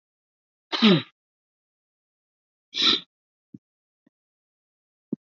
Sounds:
Sniff